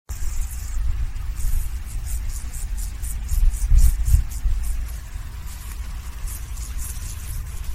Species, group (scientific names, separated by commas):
Chorthippus brunneus, Orthoptera